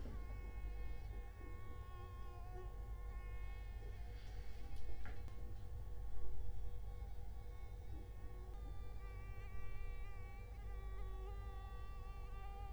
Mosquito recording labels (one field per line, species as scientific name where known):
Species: Culex quinquefasciatus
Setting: cup